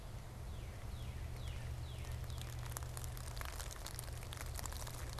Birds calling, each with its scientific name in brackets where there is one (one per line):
Northern Cardinal (Cardinalis cardinalis)